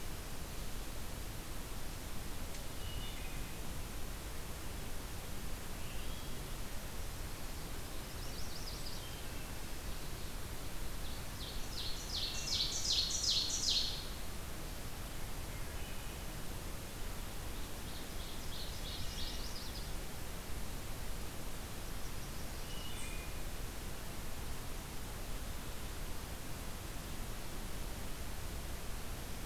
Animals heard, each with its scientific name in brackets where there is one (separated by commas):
Chestnut-sided Warbler (Setophaga pensylvanica), Ovenbird (Seiurus aurocapilla), Wood Thrush (Hylocichla mustelina)